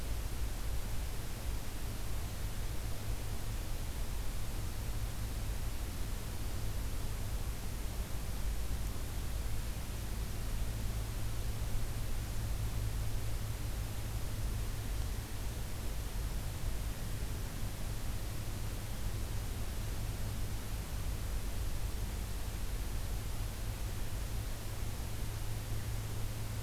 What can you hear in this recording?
forest ambience